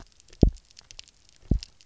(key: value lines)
label: biophony, double pulse
recorder: SoundTrap 300